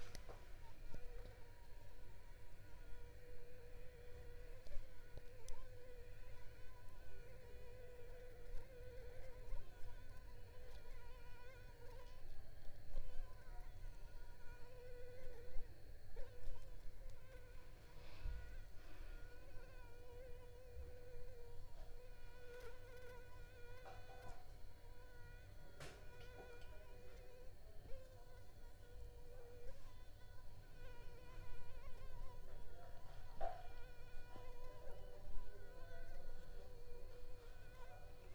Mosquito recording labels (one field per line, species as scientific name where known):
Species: Anopheles arabiensis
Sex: female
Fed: unfed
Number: one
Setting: cup